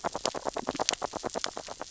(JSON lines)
{"label": "biophony, grazing", "recorder": "SoundTrap 600 or HydroMoth"}